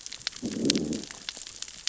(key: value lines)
label: biophony, growl
recorder: SoundTrap 600 or HydroMoth